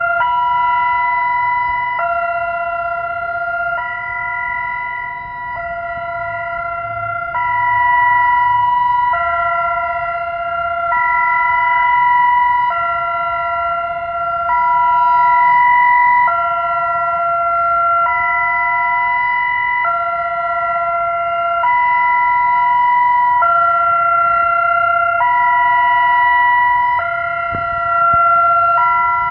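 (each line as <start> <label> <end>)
0.0 An air-raid siren is played with a perfect delay, creating a strong reverb that bounces around the city. 29.3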